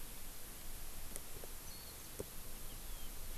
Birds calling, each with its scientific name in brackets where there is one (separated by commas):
Warbling White-eye (Zosterops japonicus)